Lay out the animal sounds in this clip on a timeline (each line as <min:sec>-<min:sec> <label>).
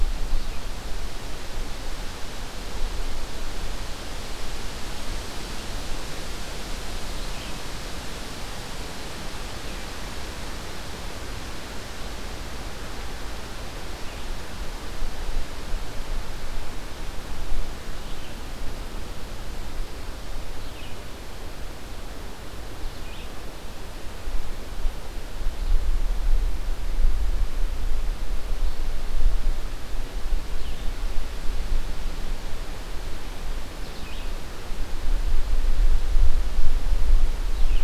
0:17.9-0:37.8 Red-eyed Vireo (Vireo olivaceus)